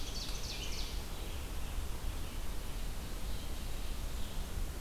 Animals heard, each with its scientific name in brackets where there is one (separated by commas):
American Robin (Turdus migratorius), Red-eyed Vireo (Vireo olivaceus), Ovenbird (Seiurus aurocapilla)